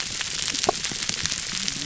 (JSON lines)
{"label": "biophony, whup", "recorder": "SoundTrap 300"}